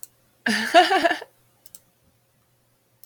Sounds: Laughter